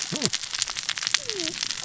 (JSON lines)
{"label": "biophony, cascading saw", "recorder": "SoundTrap 600 or HydroMoth"}